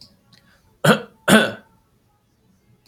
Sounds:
Cough